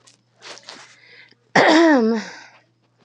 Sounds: Throat clearing